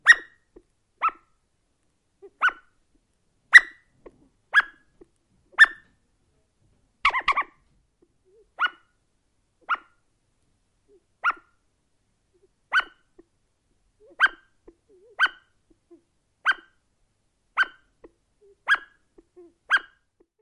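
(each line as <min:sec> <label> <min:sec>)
0:00.0 A high-pitched bird caller decoy sound. 0:00.2
0:01.0 A high-pitched bird caller decoy sound. 0:01.2
0:02.2 A high-pitched bird caller decoy sound. 0:02.5
0:03.5 A high-pitched bird caller decoy sound. 0:03.7
0:04.5 A high-pitched bird caller decoy sound. 0:04.7
0:05.5 A high-pitched bird caller decoy sound. 0:05.7
0:07.0 The wobbling sound of a bird caller decoy. 0:07.5
0:08.6 A high-pitched bird caller decoy sound. 0:08.8
0:09.7 A high-pitched bird caller decoy sound. 0:09.8
0:11.2 A high-pitched bird caller decoy sound. 0:11.4
0:12.7 A bird caller whistle sounds. 0:12.9
0:12.7 A high-pitched bird caller decoy sound. 0:12.9
0:14.2 A high-pitched bird caller decoy sound. 0:14.3
0:15.2 A high-pitched bird caller decoy sound. 0:15.4
0:16.4 A high-pitched bird caller decoy sound. 0:16.6
0:17.5 A high-pitched bird caller decoy sound. 0:17.7
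0:18.6 A high-pitched bird caller decoy sound. 0:18.9
0:19.6 A high-pitched bird caller decoy sound. 0:19.8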